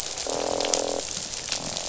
{"label": "biophony, croak", "recorder": "SoundTrap 500"}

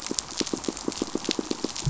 {"label": "biophony, pulse", "recorder": "SoundTrap 500"}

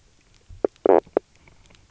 {"label": "biophony, knock croak", "recorder": "SoundTrap 300"}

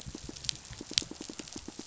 {"label": "biophony, pulse", "recorder": "SoundTrap 500"}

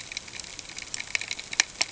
{"label": "ambient", "recorder": "HydroMoth"}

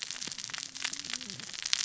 {"label": "biophony, cascading saw", "recorder": "SoundTrap 600 or HydroMoth"}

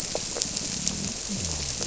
{"label": "biophony", "recorder": "SoundTrap 300"}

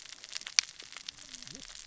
{"label": "biophony, cascading saw", "recorder": "SoundTrap 600 or HydroMoth"}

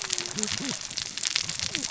{"label": "biophony, cascading saw", "recorder": "SoundTrap 600 or HydroMoth"}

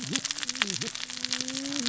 {"label": "biophony, cascading saw", "recorder": "SoundTrap 600 or HydroMoth"}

